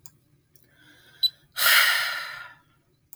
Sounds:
Sigh